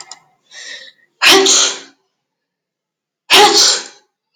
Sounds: Sneeze